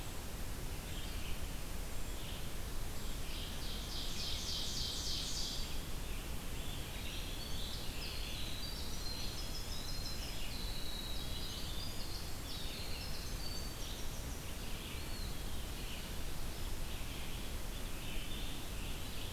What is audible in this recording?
Red-eyed Vireo, Ovenbird, Scarlet Tanager, Winter Wren, Eastern Wood-Pewee